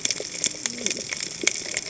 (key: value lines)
label: biophony, cascading saw
recorder: HydroMoth